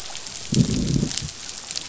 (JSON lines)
{"label": "biophony, growl", "recorder": "SoundTrap 500"}